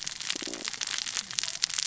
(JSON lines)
{"label": "biophony, stridulation", "recorder": "SoundTrap 600 or HydroMoth"}